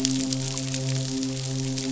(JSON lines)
{"label": "biophony, midshipman", "recorder": "SoundTrap 500"}